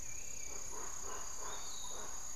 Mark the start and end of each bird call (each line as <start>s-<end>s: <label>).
0.0s-2.4s: Hauxwell's Thrush (Turdus hauxwelli)
0.0s-2.4s: Piratic Flycatcher (Legatus leucophaius)
0.0s-2.4s: Spix's Guan (Penelope jacquacu)